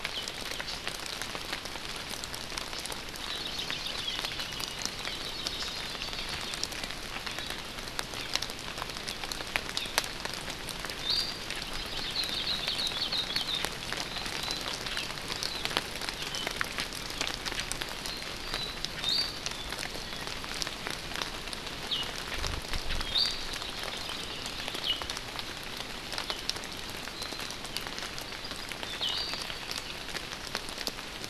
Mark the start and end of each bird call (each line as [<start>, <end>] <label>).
[3.12, 4.53] Hawaii Creeper (Loxops mana)
[4.33, 4.92] Iiwi (Drepanis coccinea)
[5.03, 6.62] Hawaii Creeper (Loxops mana)
[11.03, 11.43] Iiwi (Drepanis coccinea)
[11.93, 13.62] Hawaii Akepa (Loxops coccineus)
[19.02, 19.43] Iiwi (Drepanis coccinea)
[23.12, 23.43] Iiwi (Drepanis coccinea)
[23.62, 24.82] Hawaii Creeper (Loxops mana)
[28.82, 29.43] Iiwi (Drepanis coccinea)